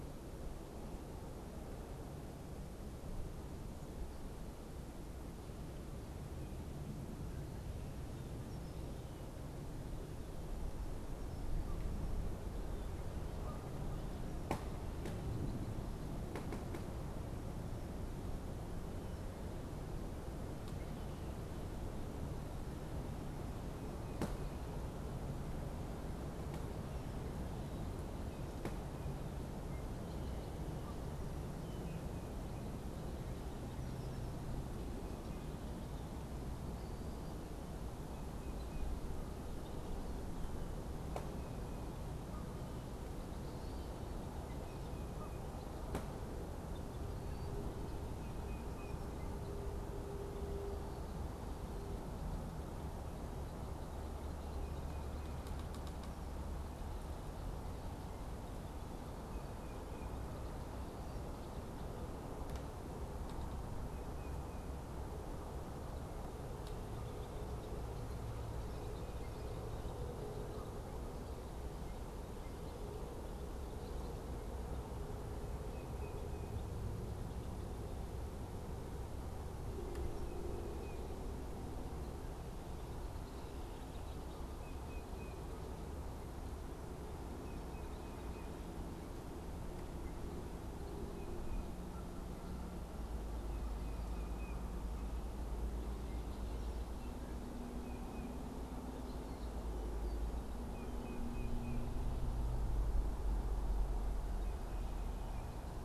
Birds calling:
Canada Goose (Branta canadensis), Killdeer (Charadrius vociferus), Tufted Titmouse (Baeolophus bicolor), Red-winged Blackbird (Agelaius phoeniceus)

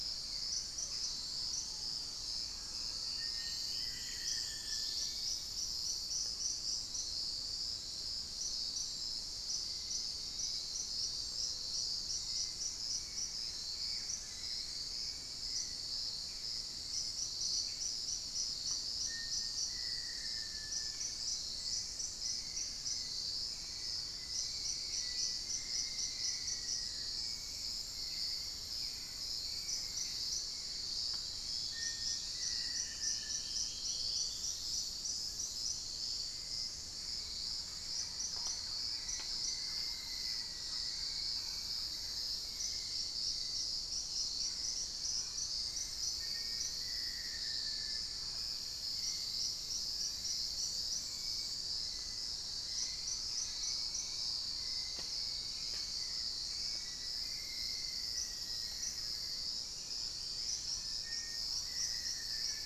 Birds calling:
Dusky-throated Antshrike (Thamnomanes ardesiacus), unidentified bird, Thrush-like Wren (Campylorhynchus turdinus), Black-faced Antthrush (Formicarius analis), Hauxwell's Thrush (Turdus hauxwelli), Dusky-capped Greenlet (Pachysylvia hypoxantha), Buff-throated Woodcreeper (Xiphorhynchus guttatus), Mealy Parrot (Amazona farinosa)

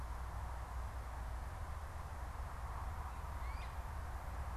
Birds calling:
Great Crested Flycatcher (Myiarchus crinitus)

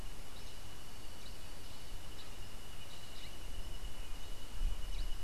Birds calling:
Black-headed Saltator (Saltator atriceps)

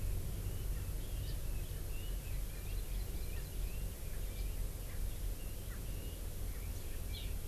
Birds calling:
Hawaii Amakihi (Chlorodrepanis virens), Red-billed Leiothrix (Leiothrix lutea), Erckel's Francolin (Pternistis erckelii)

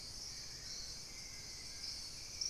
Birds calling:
Hauxwell's Thrush (Turdus hauxwelli), Collared Trogon (Trogon collaris)

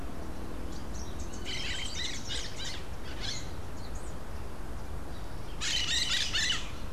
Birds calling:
Crimson-fronted Parakeet (Psittacara finschi)

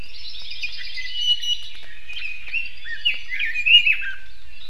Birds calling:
Hawaii Creeper (Loxops mana), Iiwi (Drepanis coccinea), Red-billed Leiothrix (Leiothrix lutea)

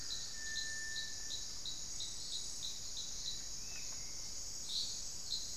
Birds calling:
Cinereous Tinamou (Crypturellus cinereus), Hauxwell's Thrush (Turdus hauxwelli)

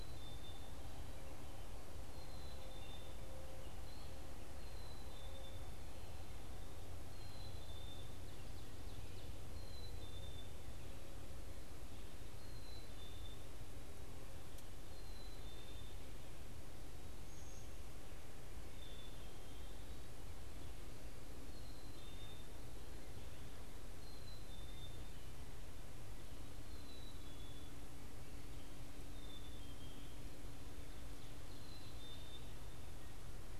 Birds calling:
Ovenbird (Seiurus aurocapilla), Black-capped Chickadee (Poecile atricapillus)

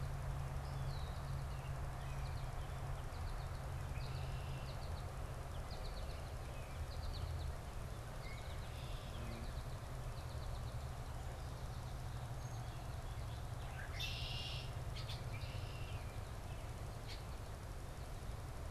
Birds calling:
Red-winged Blackbird (Agelaius phoeniceus), American Goldfinch (Spinus tristis)

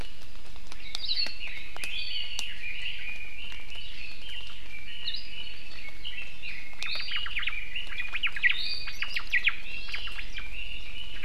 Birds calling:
Iiwi (Drepanis coccinea), Omao (Myadestes obscurus), Red-billed Leiothrix (Leiothrix lutea)

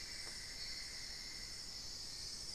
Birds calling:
Cinnamon-throated Woodcreeper (Dendrexetastes rufigula)

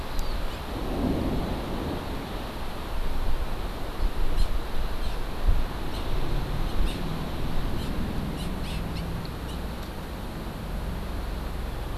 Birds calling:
Hawaii Amakihi (Chlorodrepanis virens)

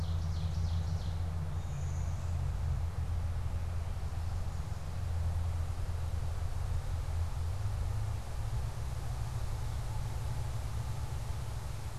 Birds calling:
Ovenbird (Seiurus aurocapilla), Blue-winged Warbler (Vermivora cyanoptera)

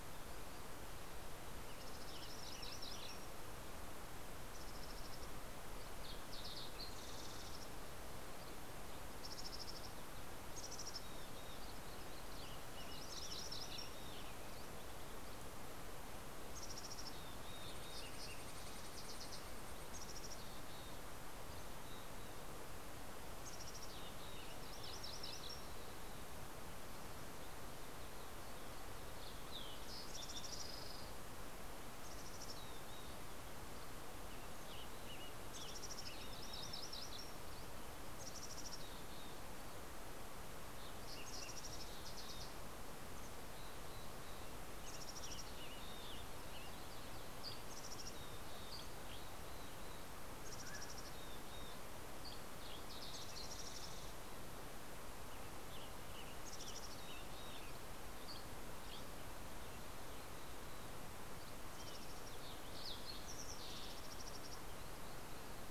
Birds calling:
Mountain Quail (Oreortyx pictus), MacGillivray's Warbler (Geothlypis tolmiei), Mountain Chickadee (Poecile gambeli), Fox Sparrow (Passerella iliaca), Dusky Flycatcher (Empidonax oberholseri), Western Tanager (Piranga ludoviciana)

